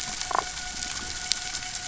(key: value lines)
label: biophony, damselfish
recorder: SoundTrap 500

label: anthrophony, boat engine
recorder: SoundTrap 500